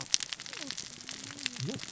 {"label": "biophony, cascading saw", "recorder": "SoundTrap 600 or HydroMoth"}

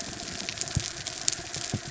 {"label": "anthrophony, mechanical", "recorder": "SoundTrap 300"}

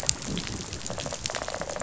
{"label": "biophony, rattle response", "recorder": "SoundTrap 500"}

